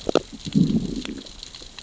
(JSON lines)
{"label": "biophony, growl", "recorder": "SoundTrap 600 or HydroMoth"}